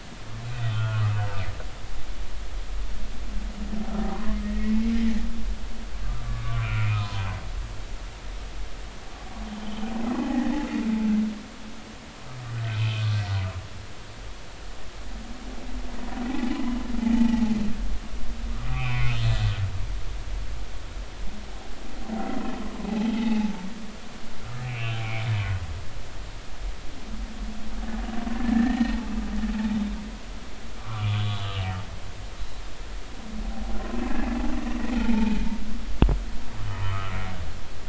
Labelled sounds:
0.5	1.0	humpback whale, 1.1 to 3.7 kHz
4.1	5.0	humpback whale, 0.93 to 2.3 kHz
6.0	7.3	humpback whale, 0.93 to 2.7 kHz
9.6	10.5	humpback whale, 0.80 to 3.2 kHz
12.7	13.3	humpback whale, 1.5 to 3.2 kHz
17.1	17.4	humpback whale, 0.80 to 0.93 kHz
18.7	19.2	humpback whale, 0.96 to 2.7 kHz
22.9	23.5	humpback whale, 0.80 to 2.7 kHz
24.6	25.3	humpback whale, 2.1 to 2.9 kHz
28.4	29.0	humpback whale, 1.5 to 2.0 kHz
30.8	31.4	humpback whale, 0.99 to 3.5 kHz
35.0	35.4	humpback whale, 0.83 to 2.7 kHz
36.8	37.4	humpback whale, 0.93 to 2.3 kHz

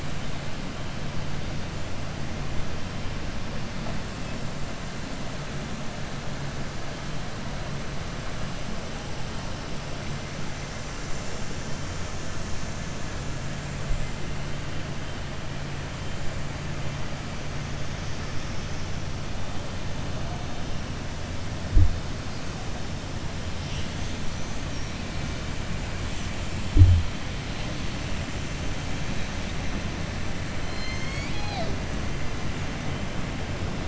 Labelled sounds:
30.6	31.7	killer whale, southern resident, 0.65 to 7.6 kHz

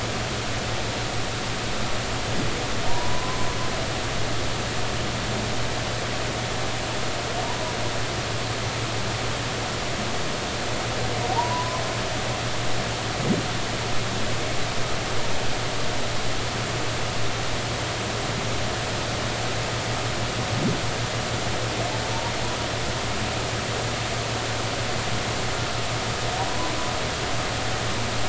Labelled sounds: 2.9	3.4	humpback whale, 0.90 to 1.1 kHz
11.3	11.8	humpback whale, 0.80 to 1.1 kHz

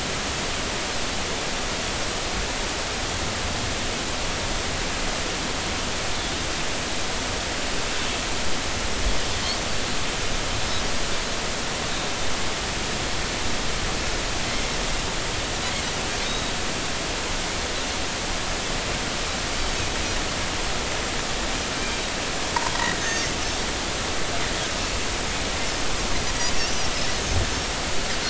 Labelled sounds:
16.2	16.5	Pacific white-sided dolphin, 3.6 to 3.9 kHz
22.7	23.3	Pacific white-sided dolphin, 1.8 to 6.5 kHz

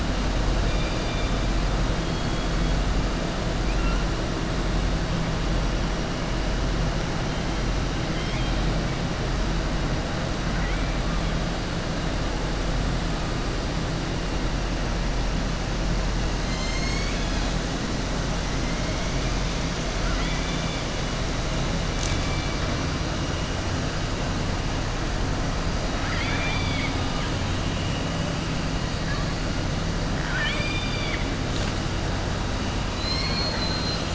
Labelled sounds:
8.0	8.6	killer whale, southern resident, 2.1 to 4.0 kHz
10.5	10.9	killer whale, southern resident, 1.4 to 3.2 kHz
20.0	20.8	killer whale, southern resident, 1.3 to 3.6 kHz
25.9	27.3	killer whale, southern resident, 1.2 to 4.8 kHz

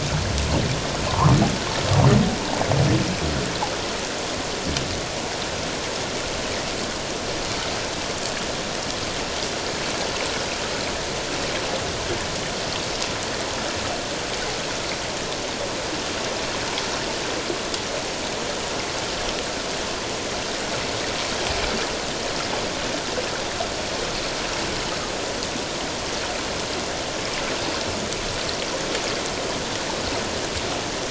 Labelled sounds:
1.1	1.4	humpback whale, 0.88 to 1.3 kHz

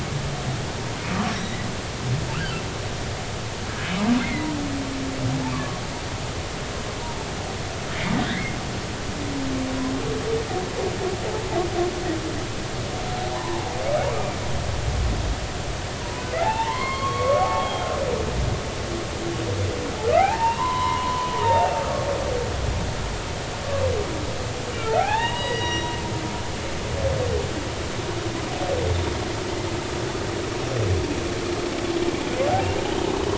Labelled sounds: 1.3	1.6	humpback whale, 3.7 to 5.9 kHz
2.3	2.6	humpback whale, 1.2 to 1.7 kHz
4.2	4.5	humpback whale, 1.9 to 2.2 kHz
5.5	5.8	humpback whale, 1.0 to 1.2 kHz
8.2	8.6	humpback whale, 1.4 to 2.2 kHz
13.3	14.3	humpback whale, 0.80 to 1.3 kHz
16.0	17.9	humpback whale, 0.80 to 4.4 kHz
20.1	21.8	humpback whale, 0.80 to 3.2 kHz
24.8	25.9	humpback whale, 0.80 to 7.7 kHz

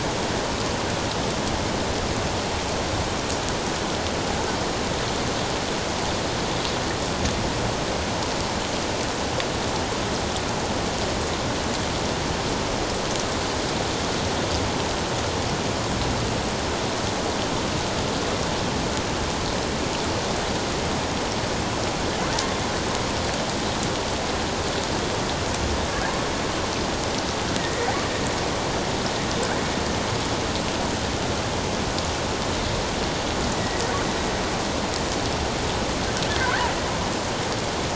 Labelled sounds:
27.6	27.9	killer whale, offshore, 1.8 to 2.0 kHz
33.6	33.8	killer whale, offshore, 1.8 to 2.0 kHz

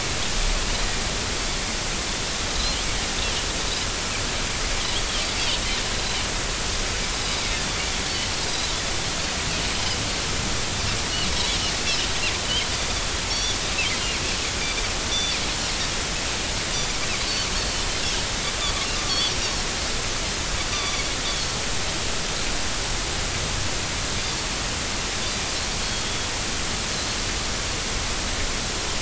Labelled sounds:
8.4	8.7	Pacific white-sided dolphin, 4.8 to 5.1 kHz
11.8	12.1	Pacific white-sided dolphin, 2.8 to 3.5 kHz
13.3	13.6	Pacific white-sided dolphin, 3.3 to 5.9 kHz
15.1	15.4	Pacific white-sided dolphin, 3.4 to 3.6 kHz
18.9	19.2	Pacific white-sided dolphin, 1.1 to 1.2 kHz
20.7	21.1	Pacific white-sided dolphin, 1.0 to 6.0 kHz
26.0	26.3	Pacific white-sided dolphin, 3.3 to 3.5 kHz

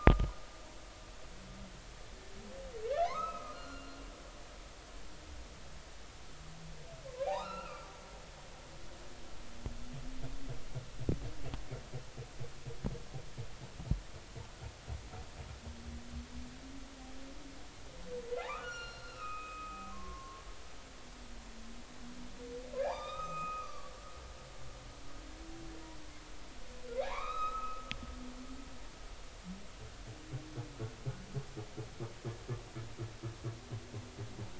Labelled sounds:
3.0	3.8	humpback whale, 0.90 to 4.3 kHz
7.2	7.9	humpback whale, 1.1 to 2.8 kHz
18.4	20.5	humpback whale, 0.80 to 7.2 kHz
22.8	23.9	humpback whale, 0.80 to 7.5 kHz
27.0	27.9	humpback whale, 0.80 to 4.0 kHz

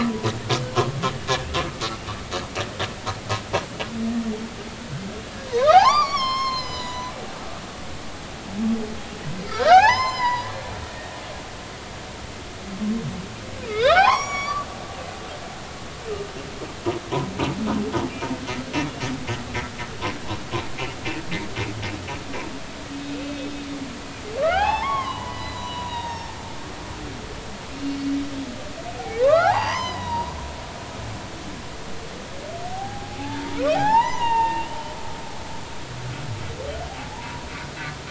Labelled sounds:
5.5	7.1	humpback whale, 0.80 to 7.1 kHz
9.5	11.2	humpback whale, 0.80 to 7.3 kHz
13.7	14.7	humpback whale, 0.80 to 8.0 kHz
24.4	26.4	humpback whale, 0.80 to 4.1 kHz
27.8	30.3	humpback whale, 0.80 to 6.4 kHz
32.7	35.0	humpback whale, 0.80 to 3.9 kHz
37.0	37.4	humpback whale, 0.80 to 1.0 kHz

